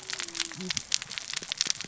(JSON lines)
{"label": "biophony, cascading saw", "recorder": "SoundTrap 600 or HydroMoth"}